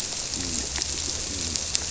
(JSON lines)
{"label": "biophony", "recorder": "SoundTrap 300"}